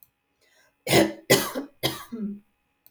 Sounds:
Cough